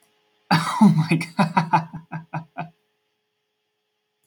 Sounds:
Laughter